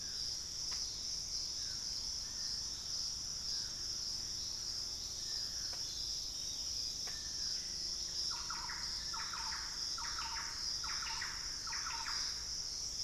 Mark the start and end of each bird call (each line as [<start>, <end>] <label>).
[0.00, 12.74] Thrush-like Wren (Campylorhynchus turdinus)
[0.00, 13.04] Dusky-throated Antshrike (Thamnomanes ardesiacus)
[0.00, 13.04] unidentified bird
[5.84, 8.84] Gray Antwren (Myrmotherula menetriesii)